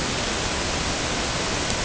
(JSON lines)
{"label": "ambient", "recorder": "HydroMoth"}